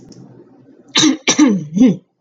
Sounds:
Throat clearing